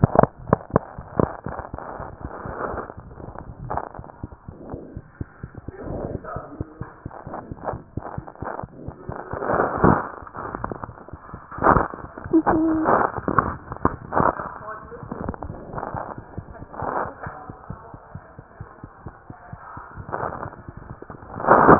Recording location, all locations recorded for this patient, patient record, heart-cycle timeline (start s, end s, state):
mitral valve (MV)
aortic valve (AV)+mitral valve (MV)
#Age: Child
#Sex: Female
#Height: 82.0 cm
#Weight: 11.0 kg
#Pregnancy status: False
#Murmur: Present
#Murmur locations: aortic valve (AV)
#Most audible location: aortic valve (AV)
#Systolic murmur timing: Holosystolic
#Systolic murmur shape: Plateau
#Systolic murmur grading: I/VI
#Systolic murmur pitch: Low
#Systolic murmur quality: Blowing
#Diastolic murmur timing: nan
#Diastolic murmur shape: nan
#Diastolic murmur grading: nan
#Diastolic murmur pitch: nan
#Diastolic murmur quality: nan
#Outcome: Abnormal
#Campaign: 2015 screening campaign
0.00	17.24	unannotated
17.24	17.31	S1
17.31	17.47	systole
17.47	17.53	S2
17.53	17.68	diastole
17.68	17.76	S1
17.76	17.91	systole
17.91	17.98	S2
17.98	18.14	diastole
18.14	18.19	S1
18.19	18.37	systole
18.37	18.42	S2
18.42	18.58	diastole
18.58	18.65	S1
18.65	18.81	systole
18.81	18.87	S2
18.87	19.04	diastole
19.04	19.11	S1
19.11	19.27	systole
19.27	19.34	S2
19.34	19.51	diastole
19.51	19.58	S1
19.58	19.75	systole
19.75	19.81	S2
19.81	19.97	diastole
19.97	20.05	S1
20.05	21.79	unannotated